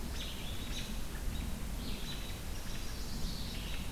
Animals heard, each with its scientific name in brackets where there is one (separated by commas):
Chestnut-sided Warbler (Setophaga pensylvanica), Red-eyed Vireo (Vireo olivaceus)